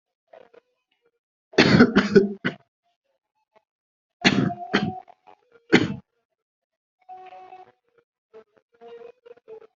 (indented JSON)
{
  "expert_labels": [
    {
      "quality": "poor",
      "cough_type": "unknown",
      "dyspnea": false,
      "wheezing": false,
      "stridor": false,
      "choking": false,
      "congestion": false,
      "nothing": true,
      "diagnosis": "lower respiratory tract infection",
      "severity": "mild"
    },
    {
      "quality": "ok",
      "cough_type": "dry",
      "dyspnea": false,
      "wheezing": false,
      "stridor": false,
      "choking": false,
      "congestion": false,
      "nothing": true,
      "diagnosis": "COVID-19",
      "severity": "mild"
    },
    {
      "quality": "good",
      "cough_type": "dry",
      "dyspnea": false,
      "wheezing": false,
      "stridor": false,
      "choking": false,
      "congestion": false,
      "nothing": true,
      "diagnosis": "upper respiratory tract infection",
      "severity": "mild"
    },
    {
      "quality": "good",
      "cough_type": "dry",
      "dyspnea": false,
      "wheezing": false,
      "stridor": false,
      "choking": false,
      "congestion": false,
      "nothing": true,
      "diagnosis": "upper respiratory tract infection",
      "severity": "mild"
    }
  ],
  "age": 23,
  "gender": "female",
  "respiratory_condition": false,
  "fever_muscle_pain": false,
  "status": "COVID-19"
}